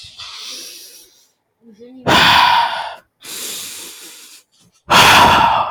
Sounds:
Sigh